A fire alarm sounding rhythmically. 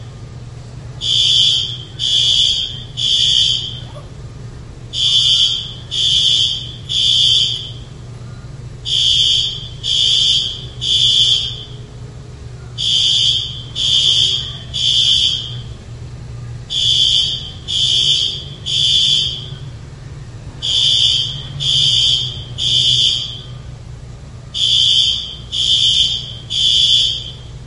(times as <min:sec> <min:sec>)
0:01.1 0:03.6, 0:04.9 0:07.6, 0:08.8 0:11.5, 0:12.7 0:15.5, 0:16.7 0:19.4, 0:20.5 0:23.3, 0:24.5 0:27.2